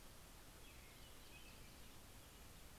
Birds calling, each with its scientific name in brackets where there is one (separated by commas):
American Robin (Turdus migratorius), Yellow-rumped Warbler (Setophaga coronata)